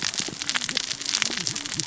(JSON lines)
{"label": "biophony, cascading saw", "recorder": "SoundTrap 600 or HydroMoth"}